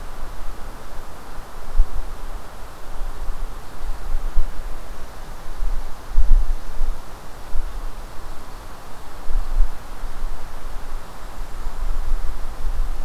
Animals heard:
forest ambience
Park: Marsh-Billings-Rockefeller National Historical Park